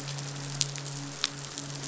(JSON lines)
{"label": "biophony, midshipman", "recorder": "SoundTrap 500"}